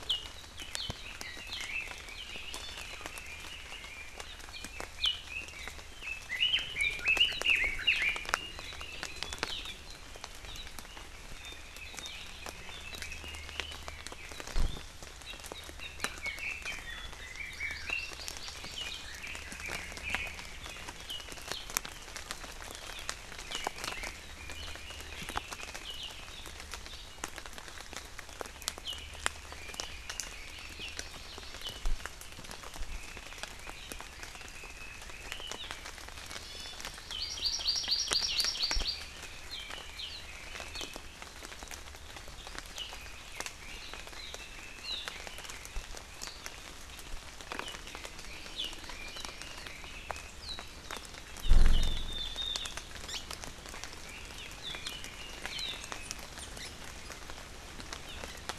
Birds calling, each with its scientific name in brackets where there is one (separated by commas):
Hawaii Amakihi (Chlorodrepanis virens), Red-billed Leiothrix (Leiothrix lutea)